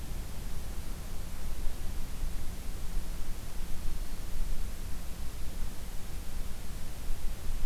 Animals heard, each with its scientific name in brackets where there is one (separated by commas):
Black-throated Green Warbler (Setophaga virens)